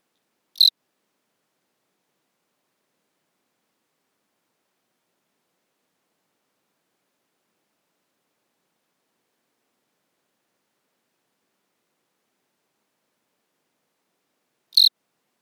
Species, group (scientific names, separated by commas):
Eugryllodes pipiens, Orthoptera